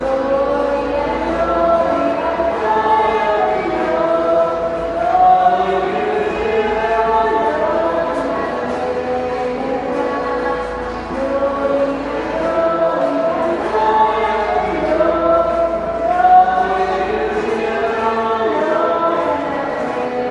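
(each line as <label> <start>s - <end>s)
Several people are singing prayers indoors, their voices echoing. 0.0s - 20.3s
A quiet, rhythmic echoing music is playing. 0.0s - 20.3s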